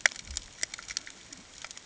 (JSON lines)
{"label": "ambient", "recorder": "HydroMoth"}